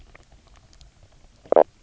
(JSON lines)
{"label": "biophony, knock croak", "recorder": "SoundTrap 300"}